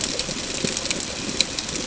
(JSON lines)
{"label": "ambient", "recorder": "HydroMoth"}